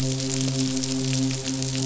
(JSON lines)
{"label": "biophony, midshipman", "recorder": "SoundTrap 500"}